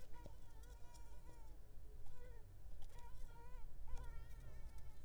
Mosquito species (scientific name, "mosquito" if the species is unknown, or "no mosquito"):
Mansonia uniformis